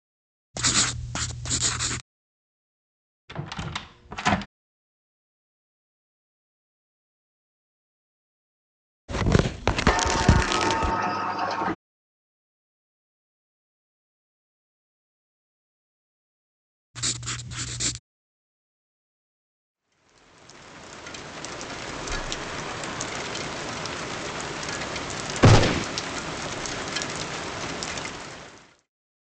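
From 19.71 to 28.91 seconds, rain falls, fading in and later fading out. At 0.54 seconds, writing can be heard. After that, at 3.28 seconds, the sound of a door is audible. Later, at 9.08 seconds, tearing is heard. Over it, at 9.87 seconds, the sound of a sliding door can be heard. Afterwards, at 16.94 seconds, writing is audible. Following that, at 25.42 seconds, gunfire is heard.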